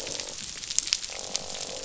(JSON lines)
{"label": "biophony, croak", "recorder": "SoundTrap 500"}